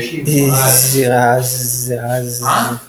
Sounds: Sneeze